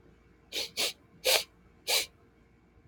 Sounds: Sniff